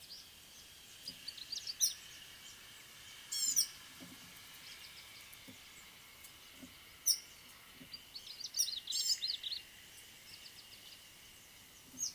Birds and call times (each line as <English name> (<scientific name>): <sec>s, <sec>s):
Red-faced Crombec (Sylvietta whytii): 1.5s, 8.5s
Gray-backed Camaroptera (Camaroptera brevicaudata): 3.5s, 9.1s
Red-headed Weaver (Anaplectes rubriceps): 7.1s